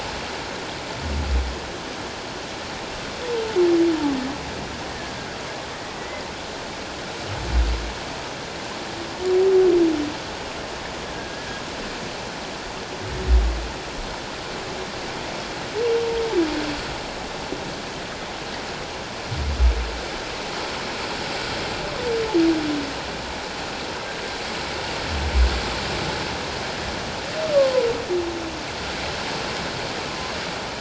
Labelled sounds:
6.0	6.2	humpback whale, 1.9 to 2.1 kHz
11.1	11.6	humpback whale, 1.6 to 1.8 kHz

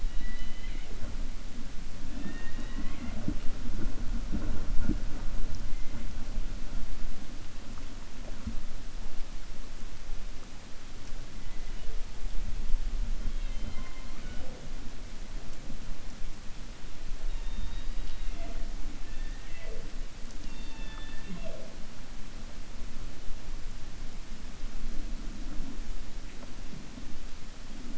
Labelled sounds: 0.0	0.9	killer whale, 1.9 to 4.9 kHz

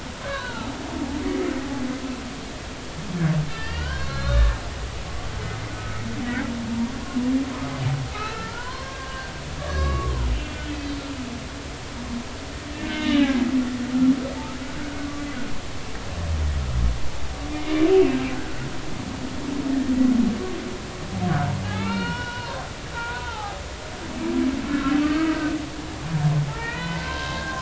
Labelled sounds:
0.3	0.7	humpback whale, 0.80 to 1.2 kHz
1.2	1.7	humpback whale, 1.2 to 2.1 kHz
3.5	4.6	humpback whale, 1.1 to 4.4 kHz
6.7	6.9	humpback whale, 0.90 to 0.99 kHz
8.1	9.3	humpback whale, 0.90 to 2.7 kHz
9.7	11.0	humpback whale, 1.0 to 4.6 kHz
12.9	13.5	humpback whale, 0.80 to 4.0 kHz
17.9	18.6	humpback whale, 1.3 to 2.8 kHz
21.7	23.6	humpback whale, 0.80 to 4.4 kHz
24.7	25.6	humpback whale, 1.2 to 1.7 kHz
26.5	27.6	humpback whale, 0.83 to 3.1 kHz

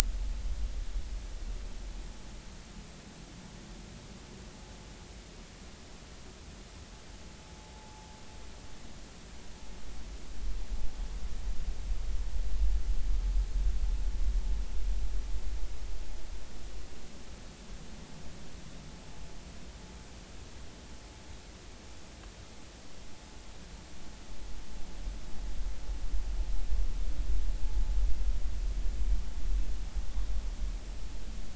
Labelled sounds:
7.8	8.1	vessel noise, 0.80 to 0.93 kHz

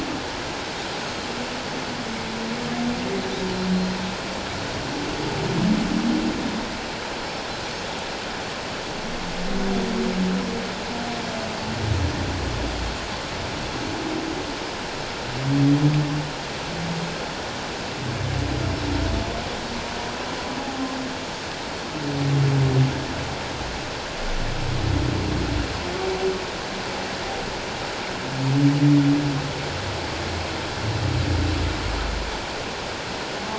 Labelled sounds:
20.6	20.9	humpback whale, 0.78 to 0.88 kHz

